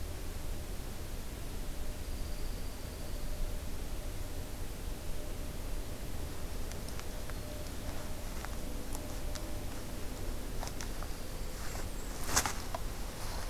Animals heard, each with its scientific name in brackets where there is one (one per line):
Dark-eyed Junco (Junco hyemalis)
Black-and-white Warbler (Mniotilta varia)